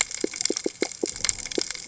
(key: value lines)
label: biophony
recorder: HydroMoth